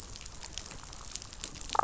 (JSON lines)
{"label": "biophony, damselfish", "recorder": "SoundTrap 500"}